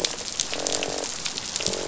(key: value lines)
label: biophony, croak
recorder: SoundTrap 500